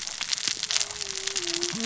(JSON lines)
{"label": "biophony, cascading saw", "recorder": "SoundTrap 600 or HydroMoth"}